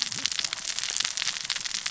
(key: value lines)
label: biophony, cascading saw
recorder: SoundTrap 600 or HydroMoth